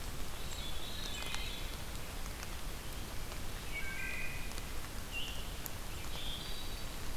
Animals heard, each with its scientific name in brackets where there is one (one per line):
Veery (Catharus fuscescens)
Wood Thrush (Hylocichla mustelina)